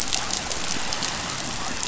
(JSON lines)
{"label": "biophony", "recorder": "SoundTrap 500"}